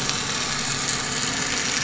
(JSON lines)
{"label": "anthrophony, boat engine", "recorder": "SoundTrap 500"}